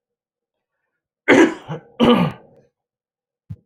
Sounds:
Throat clearing